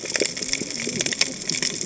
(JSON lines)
{"label": "biophony, cascading saw", "recorder": "HydroMoth"}